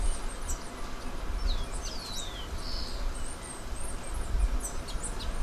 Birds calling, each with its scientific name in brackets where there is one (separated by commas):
Rufous-collared Sparrow (Zonotrichia capensis), Silver-beaked Tanager (Ramphocelus carbo), Bananaquit (Coereba flaveola)